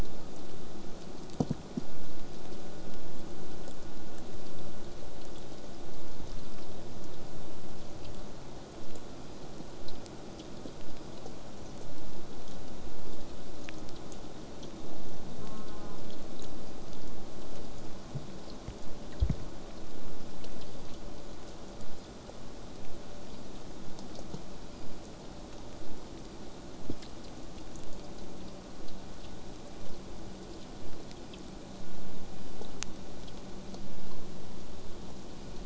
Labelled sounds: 15.4	16.0	killer whale, southern resident, J pod, call S04, 0.62 to 1.7 kHz
21.8	26.8	vessel noise, 0.15 to 8.0 kHz

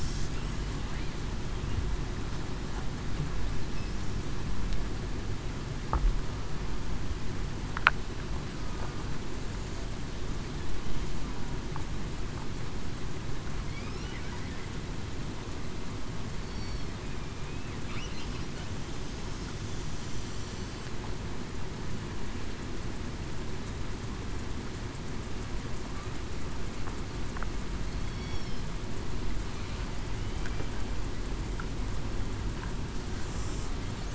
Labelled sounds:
16.4	16.9	killer whale, southern resident, 4.3 to 4.5 kHz
28.0	28.4	killer whale, southern resident, 3.3 to 3.4 kHz

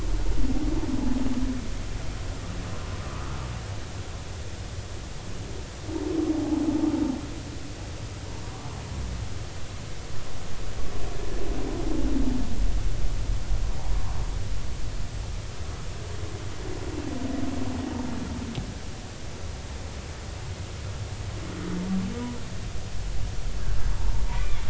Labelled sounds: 3.0	3.4	humpback whale, 0.99 to 1.4 kHz
6.4	6.6	humpback whale, 0.80 to 0.93 kHz
24.3	24.6	humpback whale, 2.1 to 2.5 kHz

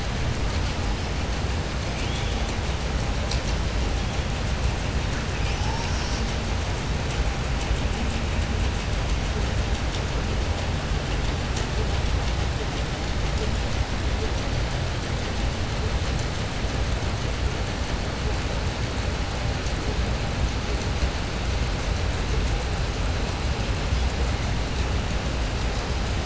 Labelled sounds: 1.9	2.4	killer whale, southern resident, 2.3 to 4.2 kHz

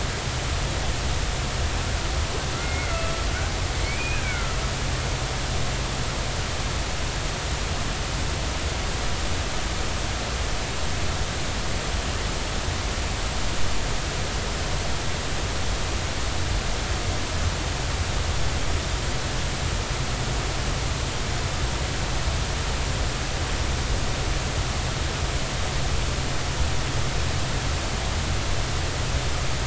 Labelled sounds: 2.6	3.1	killer whale, Bigg's (transient), 1.3 to 2.2 kHz
3.8	4.5	killer whale, Bigg's (transient), 1.3 to 2.6 kHz

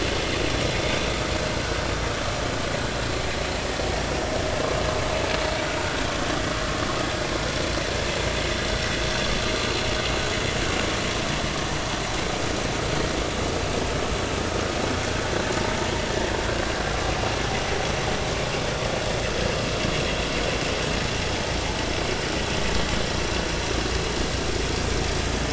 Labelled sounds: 0.9	1.2	vessel noise, 5.7 to 5.9 kHz

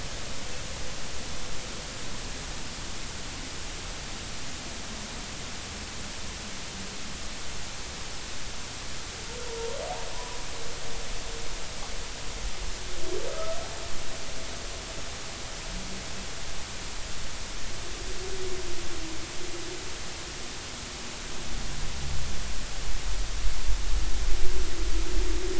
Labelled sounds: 9.5	10.5	humpback whale, 0.86 to 1.1 kHz
13.3	13.6	humpback whale, 1.2 to 1.3 kHz

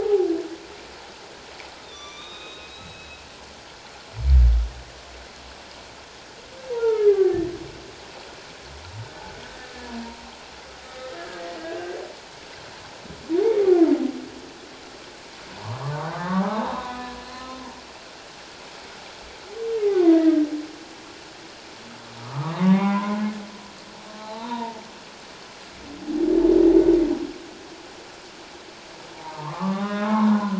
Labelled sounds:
1.8	3.2	humpback whale, 1.1 to 6.0 kHz
6.7	7.5	humpback whale, 0.84 to 2.1 kHz
10.8	11.7	humpback whale, 1.2 to 2.0 kHz
15.5	17.6	humpback whale, 0.78 to 4.2 kHz
19.9	20.4	humpback whale, 0.94 to 2.0 kHz
22.2	23.2	humpback whale, 0.78 to 2.4 kHz
24.2	24.8	humpback whale, 0.81 to 1.0 kHz
29.1	30.5	humpback whale, 0.78 to 3.8 kHz

